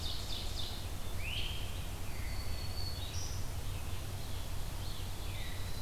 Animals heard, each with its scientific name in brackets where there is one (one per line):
Red-eyed Vireo (Vireo olivaceus)
Eastern Wood-Pewee (Contopus virens)
Black-throated Green Warbler (Setophaga virens)
Great Crested Flycatcher (Myiarchus crinitus)
Black-throated Blue Warbler (Setophaga caerulescens)
Ovenbird (Seiurus aurocapilla)